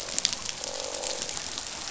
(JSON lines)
{"label": "biophony, croak", "recorder": "SoundTrap 500"}